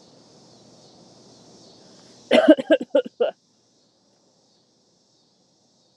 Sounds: Cough